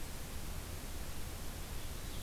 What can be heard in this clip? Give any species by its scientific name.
Haemorhous purpureus